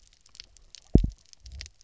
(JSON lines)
{"label": "biophony, double pulse", "recorder": "SoundTrap 300"}